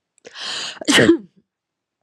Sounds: Sneeze